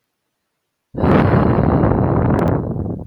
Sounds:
Sigh